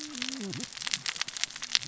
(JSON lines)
{"label": "biophony, cascading saw", "recorder": "SoundTrap 600 or HydroMoth"}